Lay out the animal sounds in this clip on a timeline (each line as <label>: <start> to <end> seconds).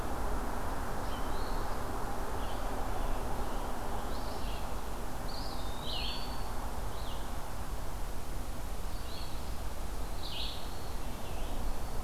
Red-eyed Vireo (Vireo olivaceus): 0.8 to 4.7 seconds
Eastern Phoebe (Sayornis phoebe): 1.3 to 1.9 seconds
Scarlet Tanager (Piranga olivacea): 2.4 to 4.4 seconds
Eastern Wood-Pewee (Contopus virens): 5.2 to 6.6 seconds
Red-eyed Vireo (Vireo olivaceus): 5.8 to 12.0 seconds
Black-throated Green Warbler (Setophaga virens): 11.4 to 12.0 seconds